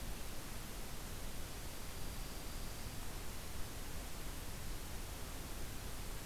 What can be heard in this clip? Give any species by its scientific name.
Junco hyemalis